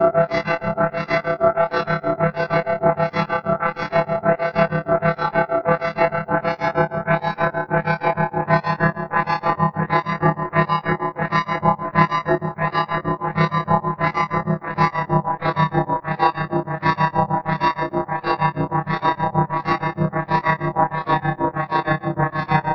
Is the noise mechanical?
yes